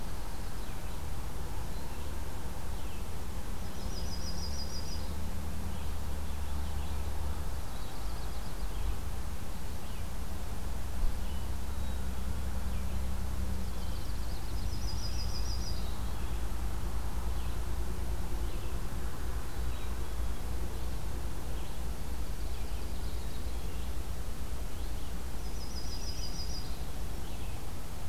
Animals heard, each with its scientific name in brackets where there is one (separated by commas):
Yellow-rumped Warbler (Setophaga coronata), Red-eyed Vireo (Vireo olivaceus), Black-capped Chickadee (Poecile atricapillus)